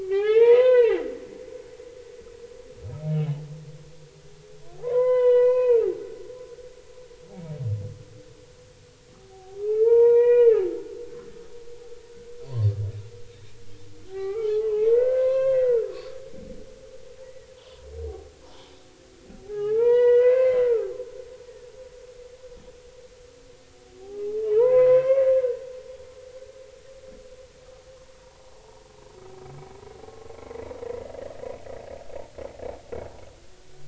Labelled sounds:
0.0	1.0	humpback whale, 0.80 to 4.4 kHz
3.1	3.4	humpback whale, 2.8 to 3.0 kHz
4.8	5.8	humpback whale, 0.90 to 4.0 kHz
9.2	10.7	humpback whale, 0.80 to 3.0 kHz
14.1	16.0	humpback whale, 0.80 to 4.3 kHz
17.2	17.5	humpback whale, 1.8 to 2.0 kHz
18.4	21.0	humpback whale, 0.80 to 5.0 kHz
24.5	25.8	humpback whale, 0.80 to 2.8 kHz
28.5	28.9	humpback whale, 0.80 to 0.99 kHz

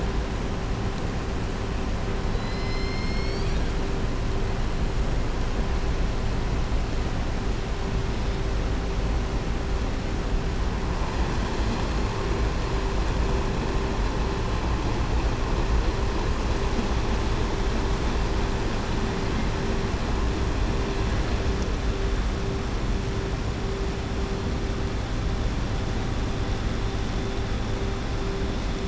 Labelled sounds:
2.3	3.7	killer whale, southern resident, 2.0 to 7.8 kHz

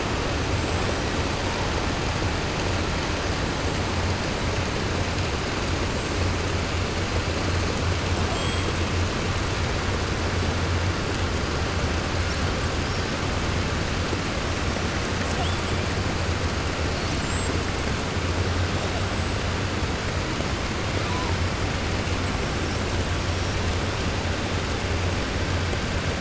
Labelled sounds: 8.2	8.6	killer whale, 2.3 to 3.6 kHz
16.9	17.6	killer whale, 4.1 to 8.0 kHz

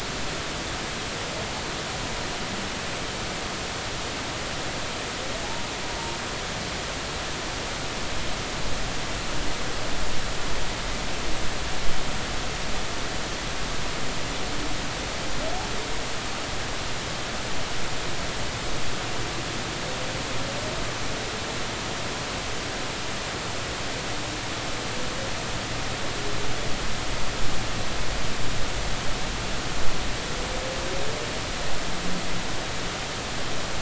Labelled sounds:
5.9	6.2	humpback whale, 0.86 to 0.99 kHz

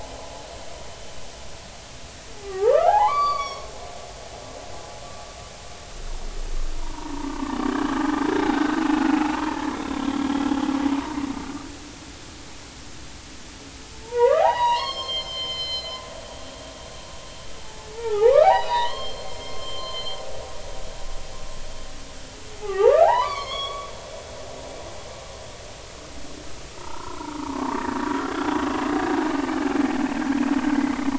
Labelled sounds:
2.4	3.7	humpback whale, 0.80 to 7.0 kHz
6.7	8.1	humpback whale, 0.86 to 1.7 kHz
8.5	9.4	humpback whale, 1.4 to 2.8 kHz
10.1	10.5	humpback whale, 3.1 to 3.5 kHz
14.0	16.0	humpback whale, 0.80 to 7.4 kHz
17.6	20.2	humpback whale, 0.80 to 7.4 kHz
22.6	23.9	humpback whale, 0.80 to 6.8 kHz
26.7	27.8	humpback whale, 0.80 to 1.5 kHz
30.7	31.1	humpback whale, 1.9 to 2.2 kHz

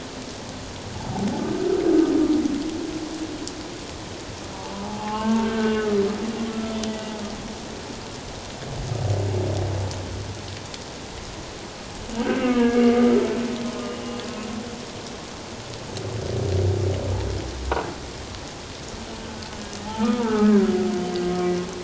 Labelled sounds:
4.7	5.9	humpback whale, 0.78 to 2.9 kHz
6.5	7.2	humpback whale, 1.3 to 3.6 kHz
12.2	13.1	humpback whale, 1.1 to 2.9 kHz
19.8	20.6	humpback whale, 0.78 to 1.5 kHz

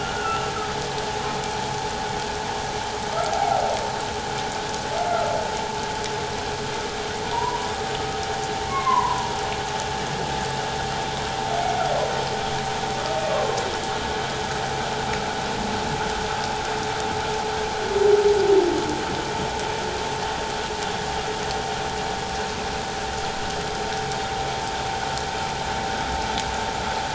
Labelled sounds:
0.0	0.5	humpback whale, 1.3 to 1.5 kHz
3.3	3.6	humpback whale, 0.78 to 0.84 kHz
7.2	7.7	humpback whale, 0.88 to 1.1 kHz
8.7	9.3	humpback whale, 0.91 to 2.2 kHz
13.3	13.6	humpback whale, 1.0 to 1.2 kHz

